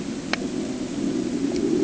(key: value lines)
label: anthrophony, boat engine
recorder: HydroMoth